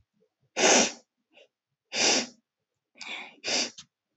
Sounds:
Sniff